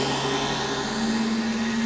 {"label": "anthrophony, boat engine", "recorder": "SoundTrap 500"}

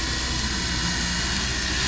{"label": "anthrophony, boat engine", "recorder": "SoundTrap 500"}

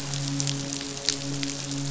{"label": "biophony, midshipman", "recorder": "SoundTrap 500"}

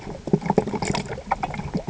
{"label": "ambient", "recorder": "HydroMoth"}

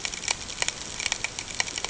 {"label": "ambient", "recorder": "HydroMoth"}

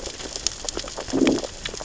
{"label": "biophony, growl", "recorder": "SoundTrap 600 or HydroMoth"}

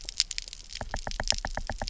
{"label": "biophony, knock", "recorder": "SoundTrap 300"}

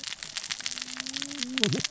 {"label": "biophony, cascading saw", "recorder": "SoundTrap 600 or HydroMoth"}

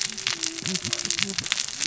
{"label": "biophony, cascading saw", "recorder": "SoundTrap 600 or HydroMoth"}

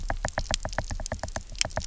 {"label": "biophony, knock", "recorder": "SoundTrap 300"}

